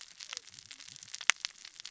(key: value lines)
label: biophony, cascading saw
recorder: SoundTrap 600 or HydroMoth